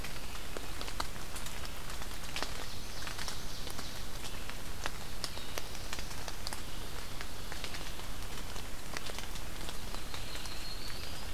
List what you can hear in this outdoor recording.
Ovenbird, Black-throated Blue Warbler, Yellow-rumped Warbler